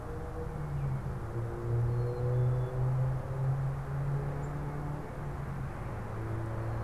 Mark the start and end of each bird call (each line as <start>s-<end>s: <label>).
1.7s-2.9s: Black-capped Chickadee (Poecile atricapillus)